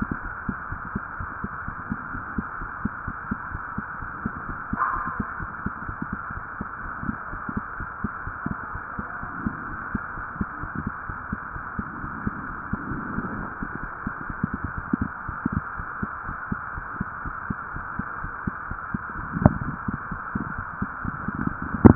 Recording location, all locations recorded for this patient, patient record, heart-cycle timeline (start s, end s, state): mitral valve (MV)
aortic valve (AV)+pulmonary valve (PV)+tricuspid valve (TV)+mitral valve (MV)
#Age: Child
#Sex: Female
#Height: 131.0 cm
#Weight: 32.4 kg
#Pregnancy status: False
#Murmur: Absent
#Murmur locations: nan
#Most audible location: nan
#Systolic murmur timing: nan
#Systolic murmur shape: nan
#Systolic murmur grading: nan
#Systolic murmur pitch: nan
#Systolic murmur quality: nan
#Diastolic murmur timing: nan
#Diastolic murmur shape: nan
#Diastolic murmur grading: nan
#Diastolic murmur pitch: nan
#Diastolic murmur quality: nan
#Outcome: Normal
#Campaign: 2015 screening campaign
0.00	0.21	unannotated
0.21	0.34	S1
0.34	0.46	systole
0.46	0.56	S2
0.56	0.70	diastole
0.70	0.80	S1
0.80	0.94	systole
0.94	1.04	S2
1.04	1.18	diastole
1.18	1.28	S1
1.28	1.42	systole
1.42	1.52	S2
1.52	1.66	diastole
1.66	1.76	S1
1.76	1.90	systole
1.90	2.00	S2
2.00	2.14	diastole
2.14	2.26	S1
2.26	2.36	systole
2.36	2.46	S2
2.46	2.60	diastole
2.60	2.70	S1
2.70	2.80	systole
2.80	2.90	S2
2.90	3.06	diastole
3.06	3.16	S1
3.16	3.30	systole
3.30	3.40	S2
3.40	3.52	diastole
3.52	3.62	S1
3.62	3.74	systole
3.74	3.84	S2
3.84	4.00	diastole
4.00	4.10	S1
4.10	4.24	systole
4.24	4.34	S2
4.34	4.48	diastole
4.48	4.58	S1
4.58	4.72	systole
4.72	4.82	S2
4.82	4.96	diastole
4.96	5.06	S1
5.06	5.18	systole
5.18	5.28	S2
5.28	5.40	diastole
5.40	5.50	S1
5.50	5.64	systole
5.64	5.72	S2
5.72	5.86	diastole
5.86	5.98	S1
5.98	6.10	systole
6.10	6.20	S2
6.20	6.36	diastole
6.36	6.46	S1
6.46	6.60	systole
6.60	6.66	S2
6.66	6.82	diastole
6.82	6.92	S1
6.92	7.02	systole
7.02	7.16	S2
7.16	7.32	diastole
7.32	7.42	S1
7.42	7.56	systole
7.56	7.66	S2
7.66	7.80	diastole
7.80	7.88	S1
7.88	8.00	systole
8.00	8.10	S2
8.10	8.26	diastole
8.26	8.36	S1
8.36	8.46	systole
8.46	8.56	S2
8.56	8.74	diastole
8.74	8.84	S1
8.84	8.98	systole
8.98	9.06	S2
9.06	9.22	diastole
9.22	9.32	S1
9.32	9.40	systole
9.40	9.54	S2
9.54	9.68	diastole
9.68	9.78	S1
9.78	9.90	systole
9.90	10.04	S2
10.04	10.15	diastole
10.15	10.24	S1
10.24	10.36	systole
10.36	10.46	S2
10.46	10.60	diastole
10.60	10.70	S1
10.70	10.78	systole
10.78	10.92	S2
10.92	11.08	diastole
11.08	11.18	S1
11.18	11.28	systole
11.28	11.38	S2
11.38	11.54	diastole
11.54	11.66	S1
11.66	11.78	systole
11.78	11.88	S2
11.88	12.02	diastole
12.02	12.16	S1
12.16	12.24	systole
12.24	12.34	S2
12.34	21.95	unannotated